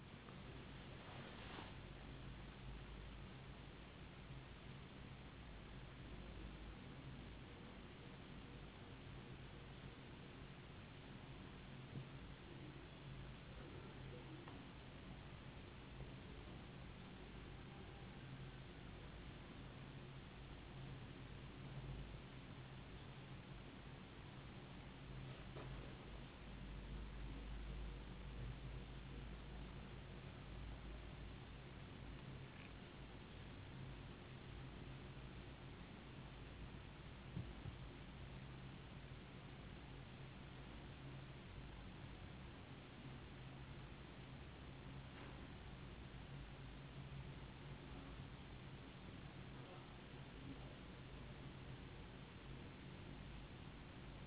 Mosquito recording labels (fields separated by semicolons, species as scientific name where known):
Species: no mosquito; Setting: insect culture